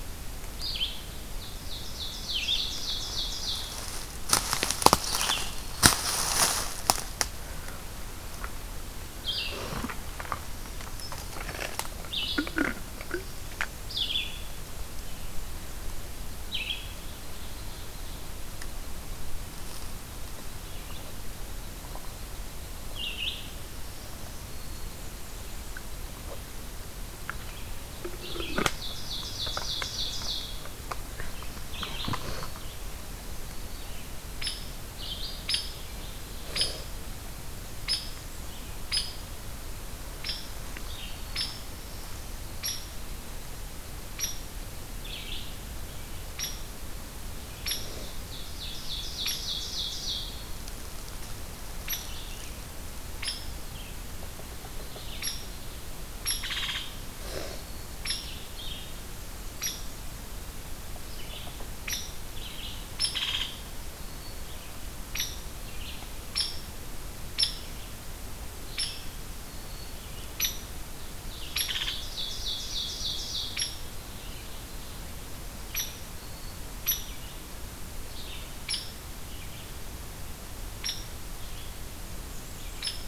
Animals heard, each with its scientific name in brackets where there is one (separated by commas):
Black-throated Green Warbler (Setophaga virens), Red-eyed Vireo (Vireo olivaceus), Hairy Woodpecker (Dryobates villosus), Blackburnian Warbler (Setophaga fusca), Ovenbird (Seiurus aurocapilla)